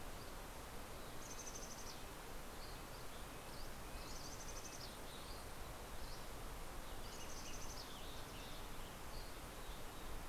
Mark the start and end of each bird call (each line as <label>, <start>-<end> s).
Red-breasted Nuthatch (Sitta canadensis), 1.0-5.2 s
Mountain Chickadee (Poecile gambeli), 1.0-6.7 s
Dusky Flycatcher (Empidonax oberholseri), 2.5-3.9 s
Dusky Flycatcher (Empidonax oberholseri), 5.9-6.4 s
Western Tanager (Piranga ludoviciana), 6.8-8.8 s
Mountain Chickadee (Poecile gambeli), 7.0-8.7 s